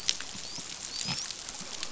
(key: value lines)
label: biophony, dolphin
recorder: SoundTrap 500